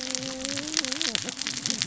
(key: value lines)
label: biophony, cascading saw
recorder: SoundTrap 600 or HydroMoth